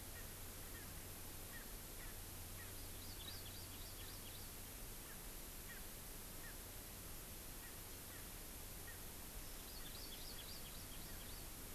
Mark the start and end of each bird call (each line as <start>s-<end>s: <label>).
0.0s-2.8s: Erckel's Francolin (Pternistis erckelii)
2.7s-4.6s: Hawaii Amakihi (Chlorodrepanis virens)
5.0s-6.6s: Erckel's Francolin (Pternistis erckelii)
7.5s-9.0s: Erckel's Francolin (Pternistis erckelii)
9.5s-11.5s: Hawaii Amakihi (Chlorodrepanis virens)